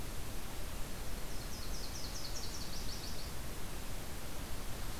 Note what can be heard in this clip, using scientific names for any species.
Leiothlypis ruficapilla